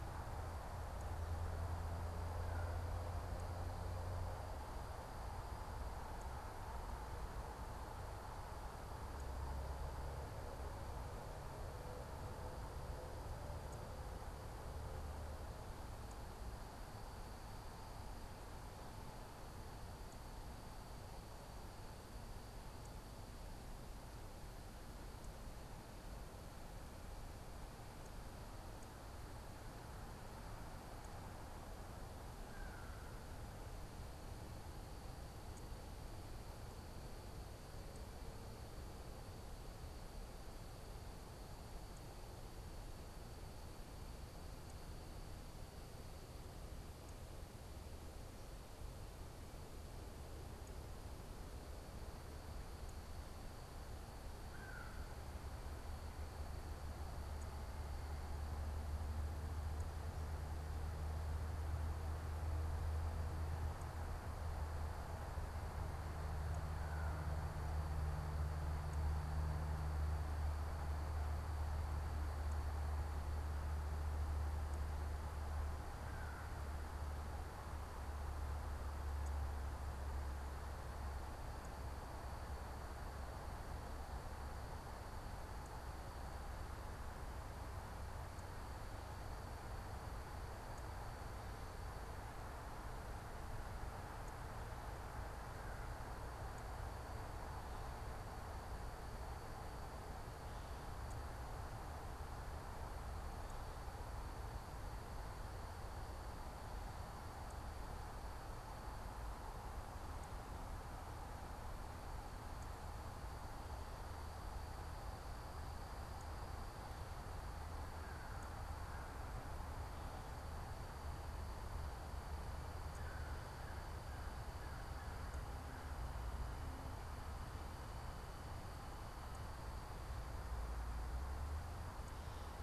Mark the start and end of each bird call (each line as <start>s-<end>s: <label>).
2.2s-3.2s: American Crow (Corvus brachyrhynchos)
32.2s-33.3s: American Crow (Corvus brachyrhynchos)
54.4s-55.2s: American Crow (Corvus brachyrhynchos)
66.6s-67.5s: American Crow (Corvus brachyrhynchos)
75.9s-76.6s: American Crow (Corvus brachyrhynchos)
122.7s-126.2s: American Crow (Corvus brachyrhynchos)